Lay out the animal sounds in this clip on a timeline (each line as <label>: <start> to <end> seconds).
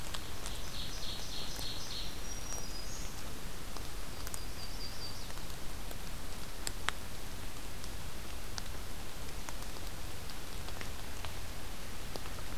Ovenbird (Seiurus aurocapilla): 0.4 to 2.3 seconds
Black-throated Green Warbler (Setophaga virens): 2.1 to 3.3 seconds
Yellow-rumped Warbler (Setophaga coronata): 4.0 to 5.4 seconds